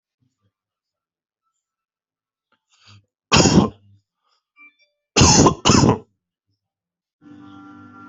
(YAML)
expert_labels:
- quality: ok
  cough_type: dry
  dyspnea: false
  wheezing: false
  stridor: false
  choking: false
  congestion: false
  nothing: true
  diagnosis: COVID-19
  severity: mild
age: 35
gender: male
respiratory_condition: false
fever_muscle_pain: false
status: healthy